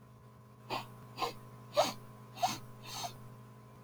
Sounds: Sniff